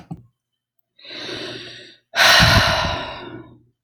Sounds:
Sigh